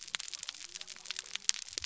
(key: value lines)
label: biophony
recorder: SoundTrap 300